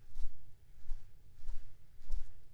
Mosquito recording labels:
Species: Aedes aegypti; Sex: female; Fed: unfed; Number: one; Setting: cup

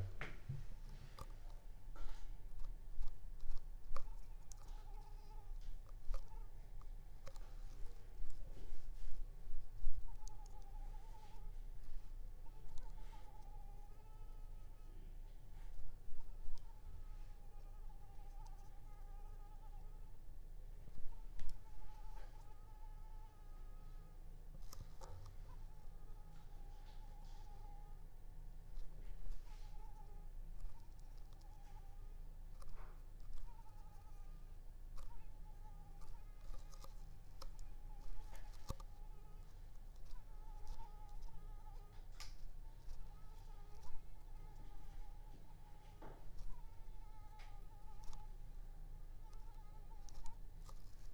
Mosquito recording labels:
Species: Anopheles arabiensis; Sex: female; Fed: unfed; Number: one; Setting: cup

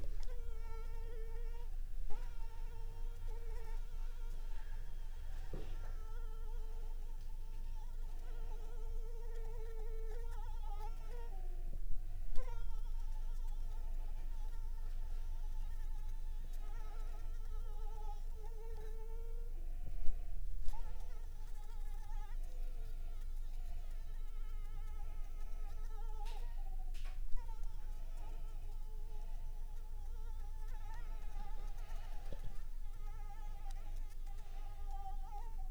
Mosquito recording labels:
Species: Anopheles arabiensis; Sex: female; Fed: unfed; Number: one; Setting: cup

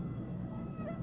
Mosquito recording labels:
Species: Aedes albopictus; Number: one; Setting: insect culture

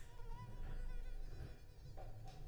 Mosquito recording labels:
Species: Culex pipiens complex; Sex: female; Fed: unfed; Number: one; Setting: cup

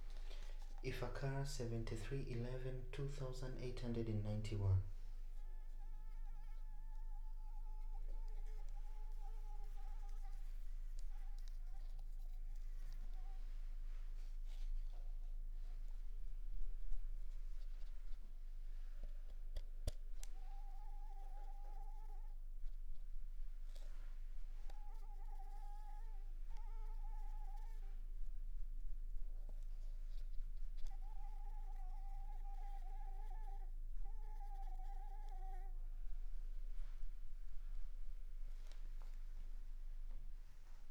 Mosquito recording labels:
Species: Anopheles arabiensis; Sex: female; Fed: unfed; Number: one; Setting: cup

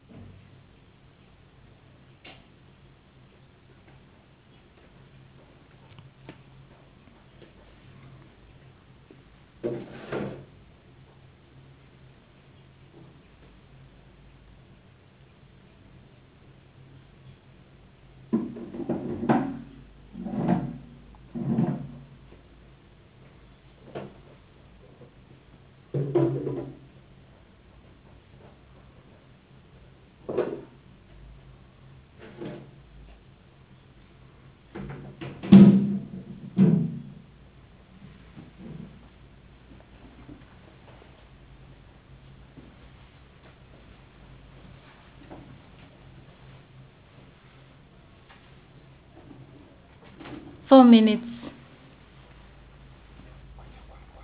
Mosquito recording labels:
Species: no mosquito; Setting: insect culture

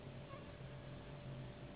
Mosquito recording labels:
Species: Anopheles gambiae s.s.; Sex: female; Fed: unfed; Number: one; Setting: insect culture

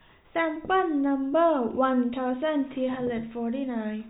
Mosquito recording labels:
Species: no mosquito; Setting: cup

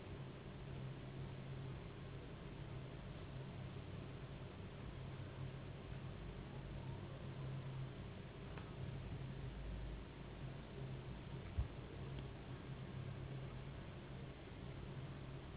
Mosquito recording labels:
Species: Anopheles gambiae s.s.; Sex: female; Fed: unfed; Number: one; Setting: insect culture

